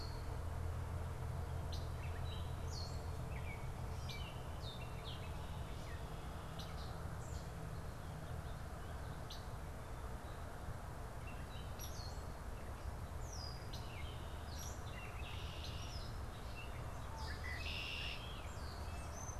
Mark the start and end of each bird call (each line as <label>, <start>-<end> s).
Red-winged Blackbird (Agelaius phoeniceus), 0.0-5.0 s
Gray Catbird (Dumetella carolinensis), 0.0-5.1 s
Red-winged Blackbird (Agelaius phoeniceus), 6.5-19.4 s
Gray Catbird (Dumetella carolinensis), 13.0-19.4 s